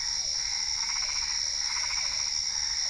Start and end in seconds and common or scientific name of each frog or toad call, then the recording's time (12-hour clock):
0.0	1.2	Physalaemus cuvieri
0.0	2.8	Boana albopunctata
1.3	2.4	Usina tree frog
2.4	2.8	Physalaemus cuvieri
8:30pm